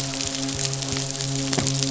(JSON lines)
{"label": "biophony, midshipman", "recorder": "SoundTrap 500"}